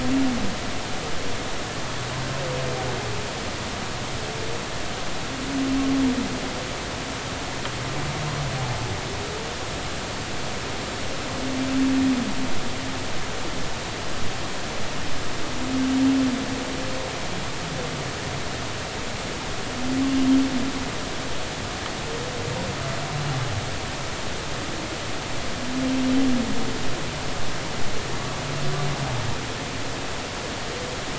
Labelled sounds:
20.1	20.4	humpback whale, 3.1 to 3.2 kHz

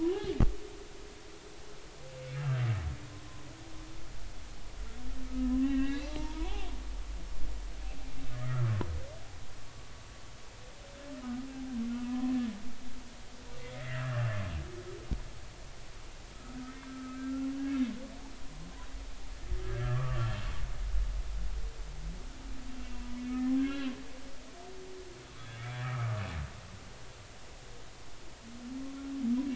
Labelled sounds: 2.3	2.6	humpback whale, 1.2 to 1.9 kHz
5.2	6.5	humpback whale, 0.83 to 3.1 kHz
8.4	8.7	humpback whale, 1.1 to 1.4 kHz
12.1	12.4	humpback whale, 0.93 to 1.1 kHz
13.8	14.3	humpback whale, 1.5 to 2.1 kHz
16.9	17.5	humpback whale, 1.2 to 1.4 kHz
19.6	20.3	humpback whale, 1.1 to 2.0 kHz
22.8	23.2	humpback whale, 0.93 to 2.8 kHz
23.6	23.9	humpback whale, 1.5 to 3.2 kHz
25.8	26.2	humpback whale, 1.1 to 1.4 kHz

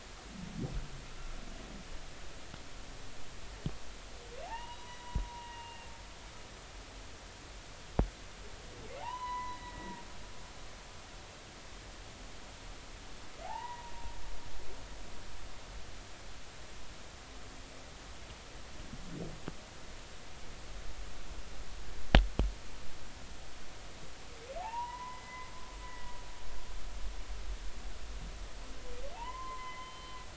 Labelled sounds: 4.4	5.8	humpback whale, 0.80 to 3.0 kHz
6.4	6.9	humpback whale, 2.7 to 2.9 kHz
9.0	10.0	humpback whale, 0.80 to 4.1 kHz
13.4	13.9	humpback whale, 0.80 to 2.0 kHz
24.6	25.5	humpback whale, 0.80 to 3.0 kHz
25.8	26.2	humpback whale, 1.9 to 2.0 kHz
29.1	30.2	humpback whale, 0.80 to 3.1 kHz

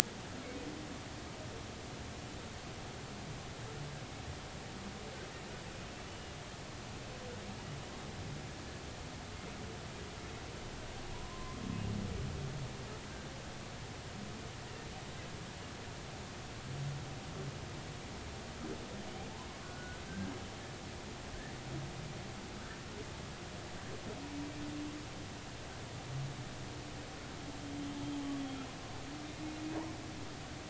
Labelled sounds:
6.1	6.3	humpback whale, 2.8 to 3.0 kHz
11.1	11.6	humpback whale, 0.93 to 1.2 kHz
19.6	20.3	humpback whale, 1.3 to 1.7 kHz
28.4	28.6	humpback whale, 3.2 to 3.4 kHz

